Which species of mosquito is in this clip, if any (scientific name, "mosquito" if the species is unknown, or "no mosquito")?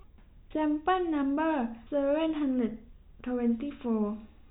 no mosquito